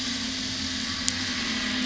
{"label": "anthrophony, boat engine", "recorder": "SoundTrap 500"}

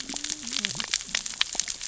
{"label": "biophony, cascading saw", "recorder": "SoundTrap 600 or HydroMoth"}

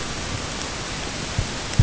{"label": "ambient", "recorder": "HydroMoth"}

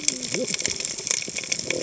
{"label": "biophony, cascading saw", "recorder": "HydroMoth"}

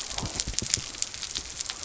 {"label": "biophony", "recorder": "SoundTrap 300"}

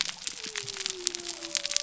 {"label": "biophony", "recorder": "SoundTrap 300"}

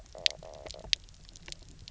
{"label": "biophony, stridulation", "recorder": "SoundTrap 300"}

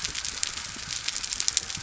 {"label": "biophony", "recorder": "SoundTrap 300"}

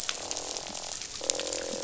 {"label": "biophony, croak", "recorder": "SoundTrap 500"}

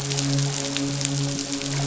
{"label": "biophony, midshipman", "recorder": "SoundTrap 500"}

